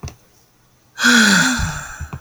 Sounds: Sigh